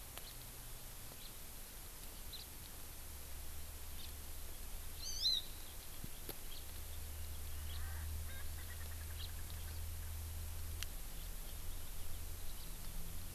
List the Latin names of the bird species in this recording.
Haemorhous mexicanus, Chlorodrepanis virens, Pternistis erckelii